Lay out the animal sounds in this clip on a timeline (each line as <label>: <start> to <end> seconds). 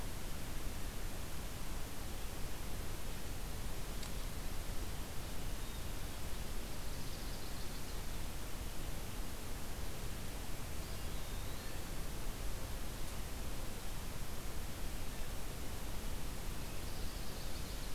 Ovenbird (Seiurus aurocapilla): 6.1 to 7.9 seconds
Eastern Wood-Pewee (Contopus virens): 10.7 to 12.2 seconds
Chestnut-sided Warbler (Setophaga pensylvanica): 16.5 to 17.9 seconds